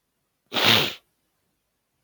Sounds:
Sniff